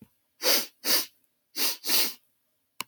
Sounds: Sniff